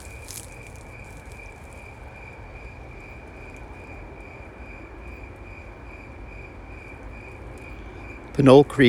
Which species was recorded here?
Oecanthus fultoni